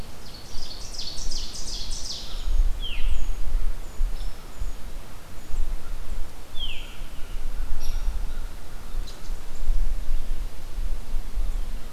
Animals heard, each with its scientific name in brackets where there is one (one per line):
Hairy Woodpecker (Dryobates villosus)
Brown Creeper (Certhia americana)
Veery (Catharus fuscescens)
Ovenbird (Seiurus aurocapilla)
American Crow (Corvus brachyrhynchos)